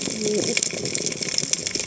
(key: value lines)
label: biophony, cascading saw
recorder: HydroMoth